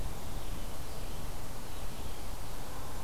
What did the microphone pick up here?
Red-eyed Vireo